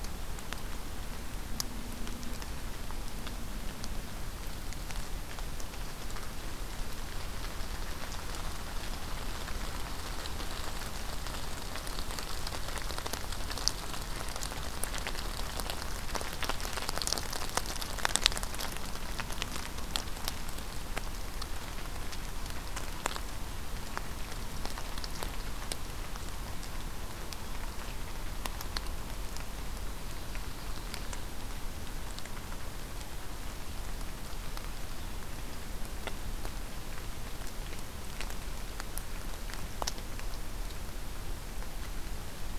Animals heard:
forest ambience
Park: Acadia National Park